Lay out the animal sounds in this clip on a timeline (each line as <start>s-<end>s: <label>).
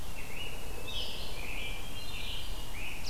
0.0s-3.1s: Red-eyed Vireo (Vireo olivaceus)
0.0s-3.1s: Scarlet Tanager (Piranga olivacea)